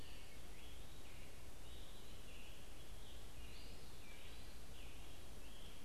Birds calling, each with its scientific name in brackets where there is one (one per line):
Eastern Wood-Pewee (Contopus virens)